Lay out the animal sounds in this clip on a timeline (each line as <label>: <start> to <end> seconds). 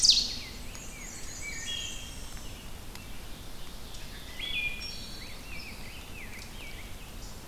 Rose-breasted Grosbeak (Pheucticus ludovicianus): 0.0 to 1.3 seconds
Black-and-white Warbler (Mniotilta varia): 0.5 to 2.1 seconds
Wood Thrush (Hylocichla mustelina): 1.2 to 2.6 seconds
Ovenbird (Seiurus aurocapilla): 2.8 to 4.7 seconds
Wood Thrush (Hylocichla mustelina): 4.0 to 5.3 seconds
Rose-breasted Grosbeak (Pheucticus ludovicianus): 4.9 to 7.4 seconds